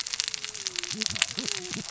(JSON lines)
{"label": "biophony, cascading saw", "recorder": "SoundTrap 600 or HydroMoth"}